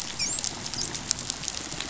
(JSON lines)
{"label": "biophony, dolphin", "recorder": "SoundTrap 500"}